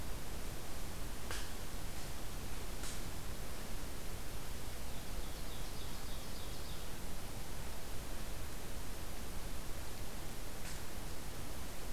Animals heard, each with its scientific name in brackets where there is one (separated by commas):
Ovenbird (Seiurus aurocapilla)